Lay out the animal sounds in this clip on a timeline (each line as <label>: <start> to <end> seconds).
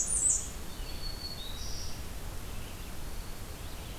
Blackburnian Warbler (Setophaga fusca): 0.0 to 0.5 seconds
Red-eyed Vireo (Vireo olivaceus): 0.0 to 4.0 seconds
Black-throated Green Warbler (Setophaga virens): 0.6 to 2.1 seconds